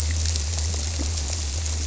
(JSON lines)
{"label": "biophony", "recorder": "SoundTrap 300"}